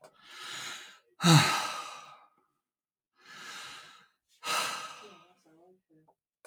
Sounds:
Sigh